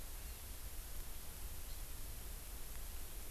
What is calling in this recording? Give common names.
Hawaii Amakihi